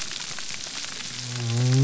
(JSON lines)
{"label": "biophony", "recorder": "SoundTrap 300"}